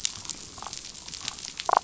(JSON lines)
{"label": "biophony, damselfish", "recorder": "SoundTrap 500"}